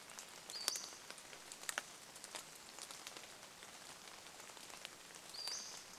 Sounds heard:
Pacific-slope Flycatcher call
rain

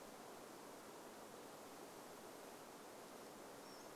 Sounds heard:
Pacific-slope Flycatcher call

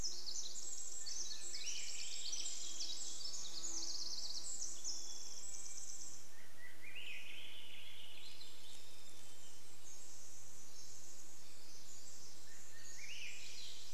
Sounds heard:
Golden-crowned Kinglet song
Pacific Wren song
Hermit Thrush song
insect buzz
Swainson's Thrush song

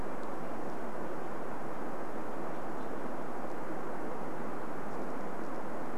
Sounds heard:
Red-breasted Nuthatch song

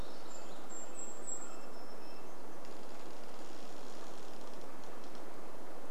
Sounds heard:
Red-breasted Nuthatch song
tree creak
warbler song
Golden-crowned Kinglet song

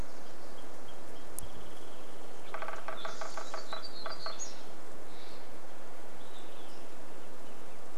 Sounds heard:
Nashville Warbler song
Wrentit song
Steller's Jay call
Olive-sided Flycatcher song
unidentified sound
warbler song
Spotted Towhee song
woodpecker drumming

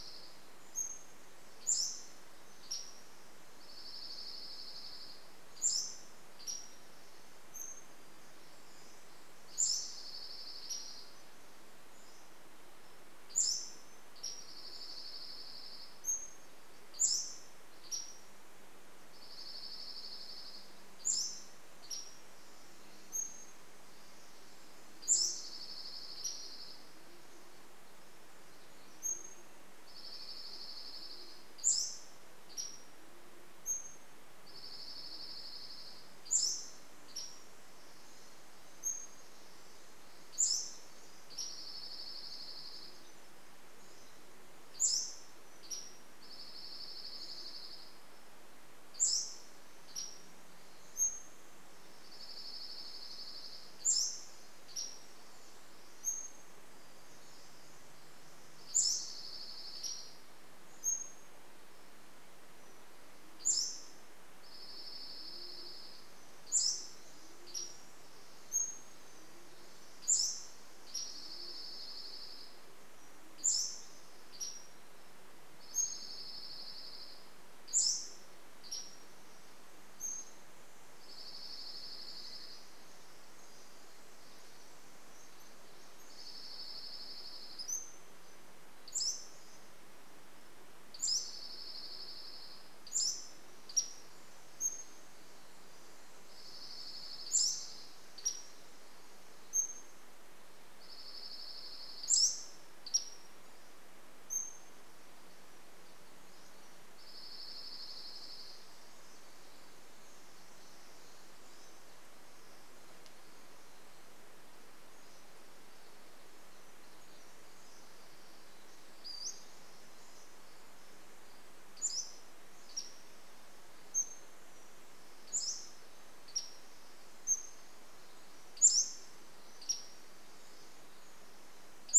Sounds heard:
Pacific-slope Flycatcher song
Pacific Wren song
Pacific-slope Flycatcher call
Dark-eyed Junco song
Band-tailed Pigeon call

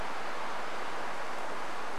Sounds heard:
insect buzz

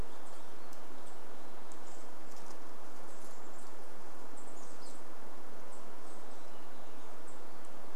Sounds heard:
unidentified sound
unidentified bird chip note
Chestnut-backed Chickadee call

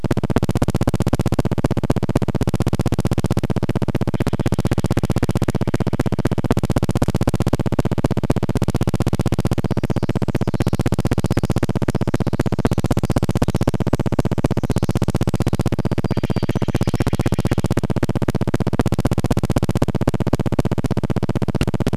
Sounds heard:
Pacific-slope Flycatcher call
Steller's Jay call
recorder noise
Pacific Wren song
warbler song

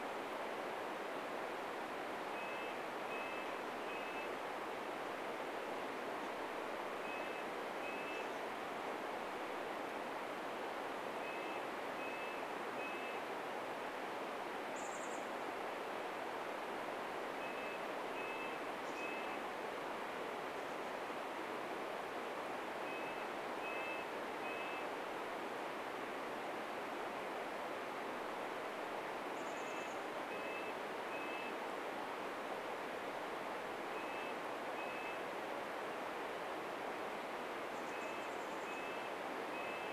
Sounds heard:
Chestnut-backed Chickadee call
Red-breasted Nuthatch song

